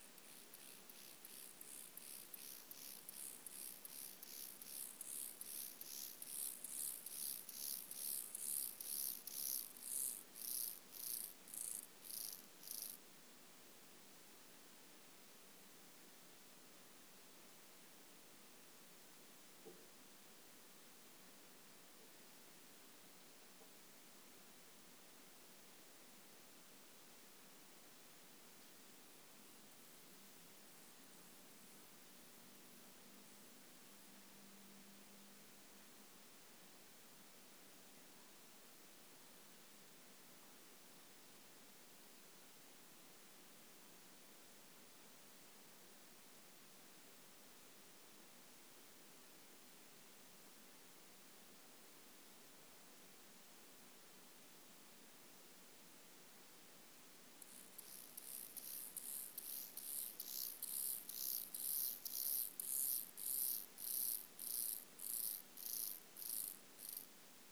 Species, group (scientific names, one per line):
Chorthippus mollis
Orthoptera